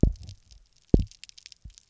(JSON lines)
{"label": "biophony, double pulse", "recorder": "SoundTrap 300"}